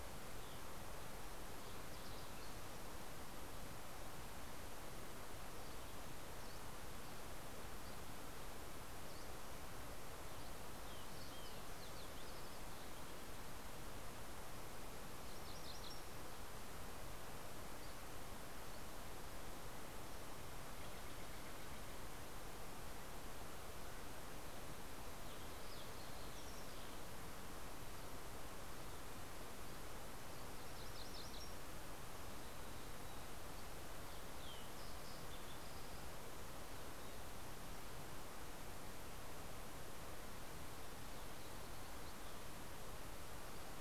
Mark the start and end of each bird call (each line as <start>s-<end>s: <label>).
4.8s-9.5s: Dusky Flycatcher (Empidonax oberholseri)
9.8s-13.6s: Bewick's Wren (Thryomanes bewickii)
14.7s-16.5s: MacGillivray's Warbler (Geothlypis tolmiei)
20.1s-22.8s: Steller's Jay (Cyanocitta stelleri)
23.4s-27.7s: Fox Sparrow (Passerella iliaca)
29.7s-31.8s: MacGillivray's Warbler (Geothlypis tolmiei)
32.5s-33.5s: Mountain Chickadee (Poecile gambeli)
34.0s-36.3s: Fox Sparrow (Passerella iliaca)